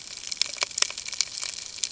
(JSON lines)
{"label": "ambient", "recorder": "HydroMoth"}